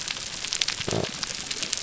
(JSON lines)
{"label": "biophony", "recorder": "SoundTrap 300"}